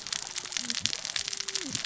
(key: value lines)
label: biophony, cascading saw
recorder: SoundTrap 600 or HydroMoth